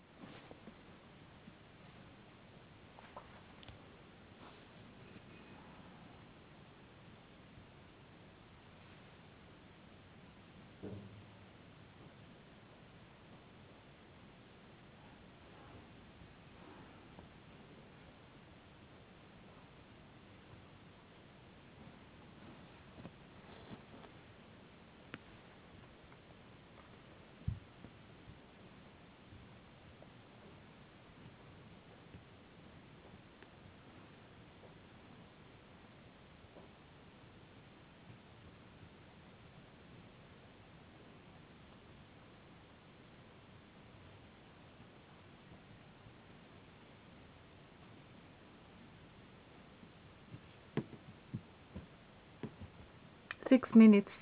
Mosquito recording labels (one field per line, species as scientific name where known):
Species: no mosquito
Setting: insect culture